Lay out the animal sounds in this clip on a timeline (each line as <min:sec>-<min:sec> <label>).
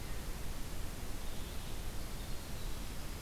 0:01.6-0:03.2 Winter Wren (Troglodytes hiemalis)